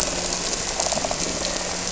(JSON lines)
{"label": "anthrophony, boat engine", "recorder": "SoundTrap 300"}
{"label": "biophony", "recorder": "SoundTrap 300"}